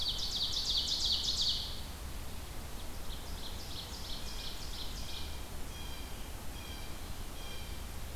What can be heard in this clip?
Ovenbird, Blue Jay